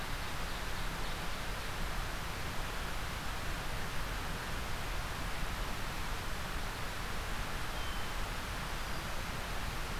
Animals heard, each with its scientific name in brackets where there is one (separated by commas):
Hermit Thrush (Catharus guttatus), Ovenbird (Seiurus aurocapilla)